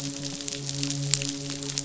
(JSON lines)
{"label": "biophony, midshipman", "recorder": "SoundTrap 500"}